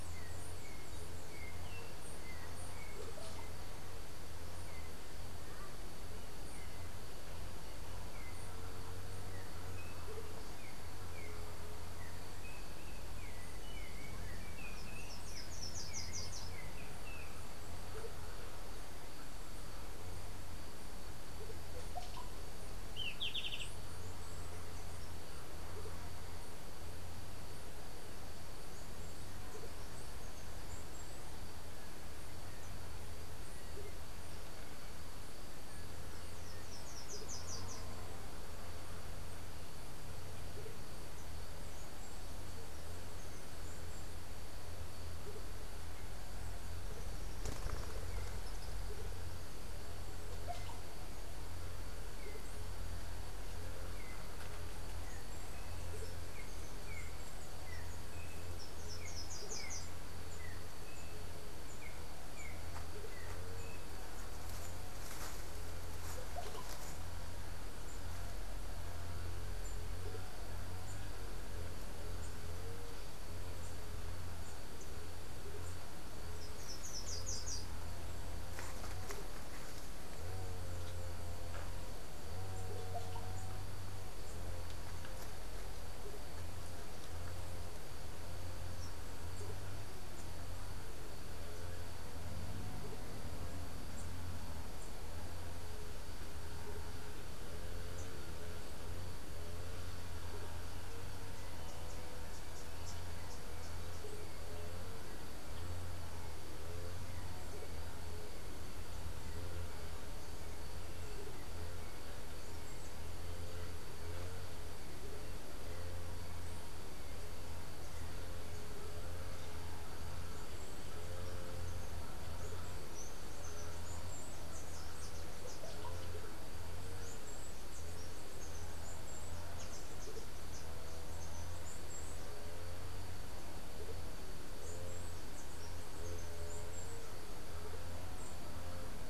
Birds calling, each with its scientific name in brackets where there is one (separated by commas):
Russet-backed Oropendola (Psarocolius angustifrons), unidentified bird, Slate-throated Redstart (Myioborus miniatus), Golden-faced Tyrannulet (Zimmerius chrysops), Yellow-backed Oriole (Icterus chrysater), Andean Motmot (Momotus aequatorialis)